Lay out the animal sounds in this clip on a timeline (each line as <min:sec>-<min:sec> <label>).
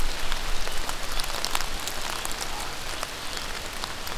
0:02.3-0:02.8 Common Raven (Corvus corax)